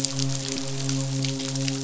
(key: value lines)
label: biophony, midshipman
recorder: SoundTrap 500